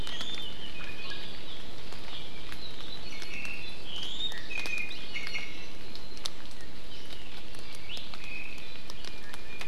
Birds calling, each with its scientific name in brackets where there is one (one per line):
Omao (Myadestes obscurus)
Iiwi (Drepanis coccinea)